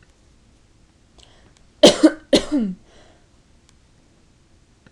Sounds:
Cough